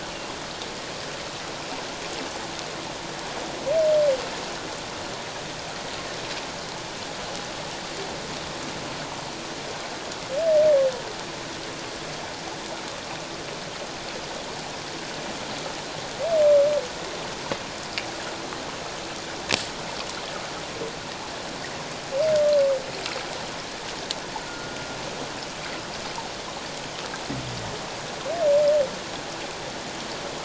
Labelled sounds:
24.5	24.8	humpback whale, 1.3 to 1.5 kHz

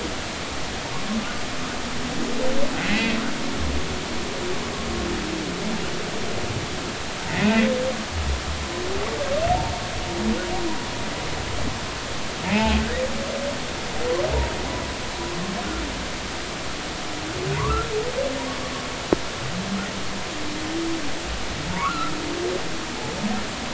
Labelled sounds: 2.9	3.2	humpback whale, 1.8 to 2.8 kHz
12.5	12.8	humpback whale, 0.80 to 2.9 kHz
17.5	17.9	humpback whale, 0.90 to 1.4 kHz
21.7	22.1	humpback whale, 0.86 to 1.5 kHz

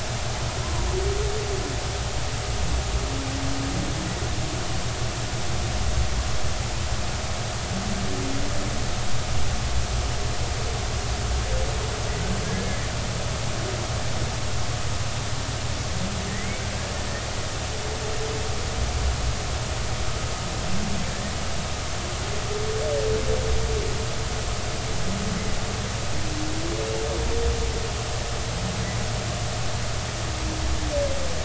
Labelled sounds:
0.6	0.9	humpback whale, 0.93 to 1.1 kHz
12.4	12.9	humpback whale, 1.6 to 2.2 kHz
16.3	16.6	humpback whale, 1.8 to 2.3 kHz

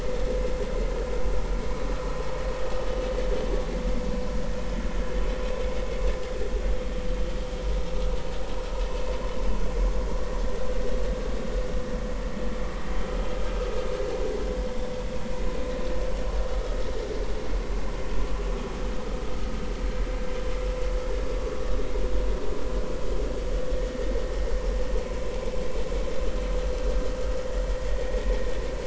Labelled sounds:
16.5	16.8	vessel noise, 1.2 to 1.3 kHz
21.3	21.6	vessel noise, 1.1 to 1.2 kHz

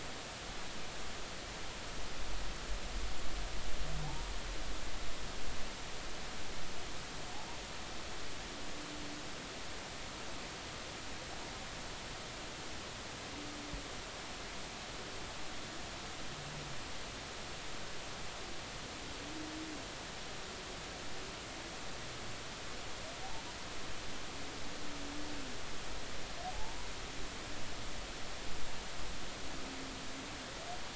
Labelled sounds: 4.0	4.3	humpback whale, 0.80 to 0.99 kHz
26.5	26.9	humpback whale, 0.80 to 0.99 kHz

